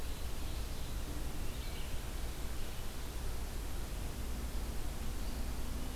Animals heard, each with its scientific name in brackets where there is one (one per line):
Red-eyed Vireo (Vireo olivaceus)